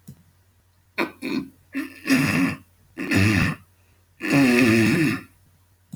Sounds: Throat clearing